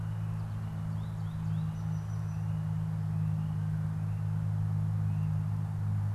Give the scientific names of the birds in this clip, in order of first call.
Spinus tristis